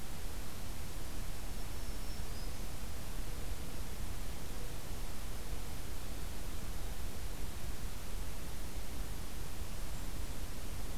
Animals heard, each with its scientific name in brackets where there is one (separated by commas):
Black-throated Green Warbler (Setophaga virens)